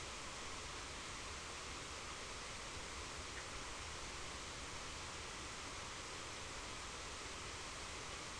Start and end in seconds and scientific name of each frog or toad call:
3.3	3.5	Boana bischoffi